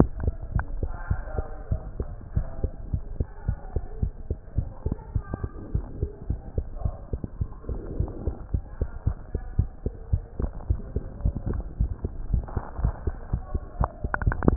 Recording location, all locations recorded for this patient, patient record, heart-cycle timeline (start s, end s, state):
mitral valve (MV)
aortic valve (AV)+pulmonary valve (PV)+tricuspid valve (TV)+mitral valve (MV)
#Age: Child
#Sex: Male
#Height: 113.0 cm
#Weight: 18.4 kg
#Pregnancy status: False
#Murmur: Absent
#Murmur locations: nan
#Most audible location: nan
#Systolic murmur timing: nan
#Systolic murmur shape: nan
#Systolic murmur grading: nan
#Systolic murmur pitch: nan
#Systolic murmur quality: nan
#Diastolic murmur timing: nan
#Diastolic murmur shape: nan
#Diastolic murmur grading: nan
#Diastolic murmur pitch: nan
#Diastolic murmur quality: nan
#Outcome: Normal
#Campaign: 2015 screening campaign
0.00	0.12	S1
0.12	0.22	systole
0.22	0.38	S2
0.38	0.52	diastole
0.52	0.66	S1
0.66	0.76	systole
0.76	0.90	S2
0.90	1.08	diastole
1.08	1.24	S1
1.24	1.38	systole
1.38	1.48	S2
1.48	1.68	diastole
1.68	1.82	S1
1.82	1.96	systole
1.96	2.12	S2
2.12	2.34	diastole
2.34	2.48	S1
2.48	2.60	systole
2.60	2.72	S2
2.72	2.90	diastole
2.90	3.04	S1
3.04	3.18	systole
3.18	3.28	S2
3.28	3.46	diastole
3.46	3.58	S1
3.58	3.72	systole
3.72	3.84	S2
3.84	4.00	diastole
4.00	4.14	S1
4.14	4.28	systole
4.28	4.38	S2
4.38	4.56	diastole
4.56	4.68	S1
4.68	4.82	systole
4.82	4.96	S2
4.96	5.12	diastole
5.12	5.24	S1
5.24	5.40	systole
5.40	5.50	S2
5.50	5.72	diastole
5.72	5.86	S1
5.86	6.00	systole
6.00	6.10	S2
6.10	6.28	diastole
6.28	6.40	S1
6.40	6.56	systole
6.56	6.66	S2
6.66	6.82	diastole
6.82	6.96	S1
6.96	7.11	systole
7.11	7.20	S2
7.20	7.38	diastole
7.38	7.50	S1
7.50	7.67	systole
7.67	7.80	S2
7.80	7.98	diastole
7.98	8.08	S1
8.08	8.22	systole
8.22	8.34	S2
8.34	8.52	diastole
8.52	8.62	S1
8.62	8.80	systole
8.80	8.90	S2
8.90	9.04	diastole
9.04	9.18	S1
9.18	9.32	systole
9.32	9.42	S2
9.42	9.56	diastole
9.56	9.70	S1
9.70	9.84	systole
9.84	9.94	S2
9.94	10.12	diastole
10.12	10.24	S1
10.24	10.38	systole
10.38	10.52	S2
10.52	10.68	diastole
10.68	10.82	S1
10.82	10.94	systole
10.94	11.06	S2
11.06	11.24	diastole
11.24	11.36	S1
11.36	11.50	systole
11.50	11.64	S2
11.64	11.78	diastole
11.78	11.92	S1
11.92	12.04	systole
12.04	12.14	S2
12.14	12.28	diastole
12.28	12.46	S1
12.46	12.54	systole
12.54	12.64	S2
12.64	12.78	diastole
12.78	12.96	S1
12.96	13.06	systole
13.06	13.16	S2
13.16	13.32	diastole
13.32	13.42	S1
13.42	13.54	systole
13.54	13.64	S2
13.64	13.78	diastole
13.78	13.88	S1
13.88	14.04	systole
14.04	14.12	S2
14.12	14.26	diastole